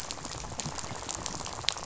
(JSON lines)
{"label": "biophony, rattle", "recorder": "SoundTrap 500"}